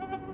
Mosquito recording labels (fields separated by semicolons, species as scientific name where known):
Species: Anopheles atroparvus; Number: one; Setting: insect culture